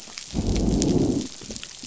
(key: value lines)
label: biophony, growl
recorder: SoundTrap 500